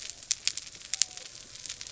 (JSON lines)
{"label": "biophony", "recorder": "SoundTrap 300"}